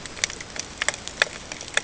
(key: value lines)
label: ambient
recorder: HydroMoth